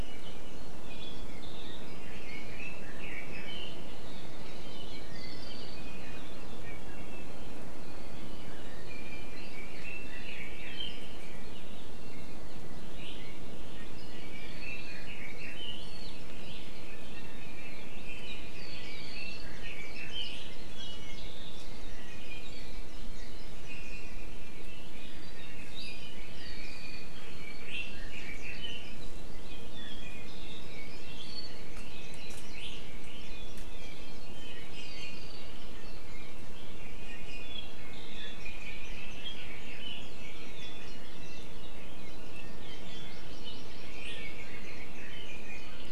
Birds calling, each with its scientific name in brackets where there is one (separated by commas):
Red-billed Leiothrix (Leiothrix lutea), Iiwi (Drepanis coccinea), Hawaii Creeper (Loxops mana), Hawaii Amakihi (Chlorodrepanis virens)